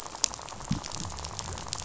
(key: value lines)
label: biophony, rattle
recorder: SoundTrap 500